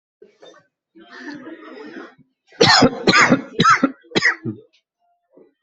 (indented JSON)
{
  "expert_labels": [
    {
      "quality": "good",
      "cough_type": "dry",
      "dyspnea": false,
      "wheezing": false,
      "stridor": false,
      "choking": false,
      "congestion": false,
      "nothing": true,
      "diagnosis": "upper respiratory tract infection",
      "severity": "mild"
    }
  ],
  "age": 46,
  "gender": "male",
  "respiratory_condition": true,
  "fever_muscle_pain": true,
  "status": "symptomatic"
}